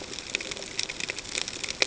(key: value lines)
label: ambient
recorder: HydroMoth